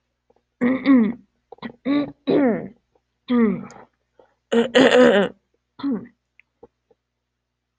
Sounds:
Throat clearing